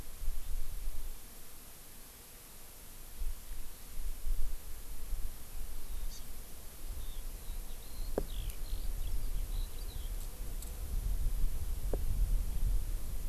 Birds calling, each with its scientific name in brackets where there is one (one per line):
Eurasian Skylark (Alauda arvensis)
Hawaii Amakihi (Chlorodrepanis virens)